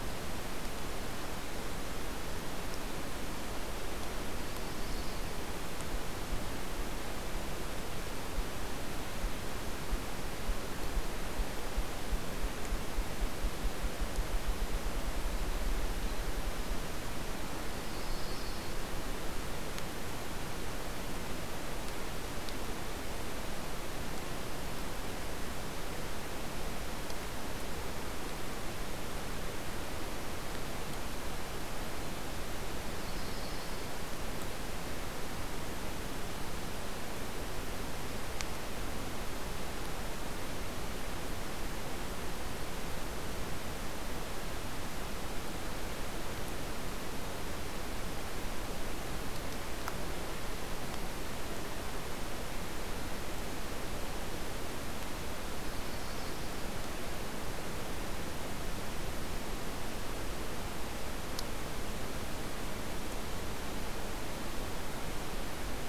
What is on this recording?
Yellow-rumped Warbler